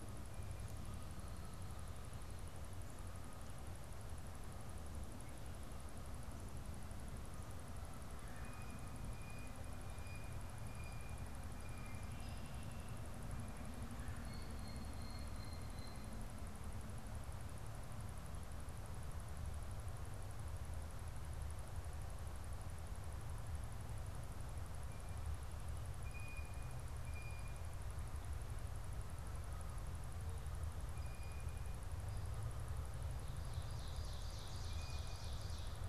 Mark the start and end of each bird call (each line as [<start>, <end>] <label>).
[8.20, 12.10] Blue Jay (Cyanocitta cristata)
[14.10, 16.20] Blue Jay (Cyanocitta cristata)
[25.70, 27.70] Blue Jay (Cyanocitta cristata)
[30.80, 31.80] Blue Jay (Cyanocitta cristata)
[33.20, 35.80] Ovenbird (Seiurus aurocapilla)